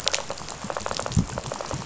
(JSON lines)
{"label": "biophony, rattle", "recorder": "SoundTrap 500"}